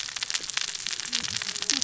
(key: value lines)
label: biophony, cascading saw
recorder: SoundTrap 600 or HydroMoth